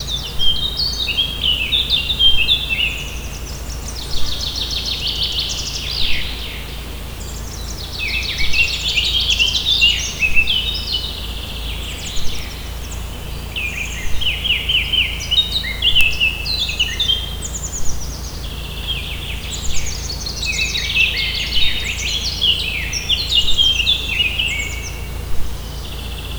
Are the birds chirping?
yes